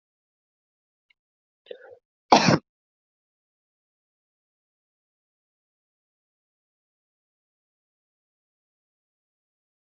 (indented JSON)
{
  "expert_labels": [
    {
      "quality": "ok",
      "cough_type": "dry",
      "dyspnea": false,
      "wheezing": false,
      "stridor": false,
      "choking": false,
      "congestion": false,
      "nothing": true,
      "diagnosis": "healthy cough",
      "severity": "pseudocough/healthy cough"
    }
  ],
  "age": 30,
  "gender": "male",
  "respiratory_condition": false,
  "fever_muscle_pain": false,
  "status": "COVID-19"
}